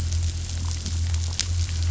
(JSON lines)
{"label": "anthrophony, boat engine", "recorder": "SoundTrap 500"}